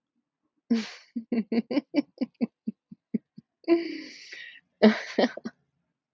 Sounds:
Laughter